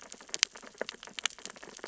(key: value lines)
label: biophony, sea urchins (Echinidae)
recorder: SoundTrap 600 or HydroMoth